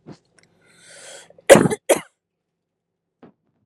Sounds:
Cough